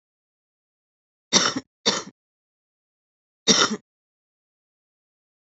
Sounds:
Cough